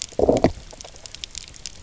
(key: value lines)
label: biophony
recorder: SoundTrap 300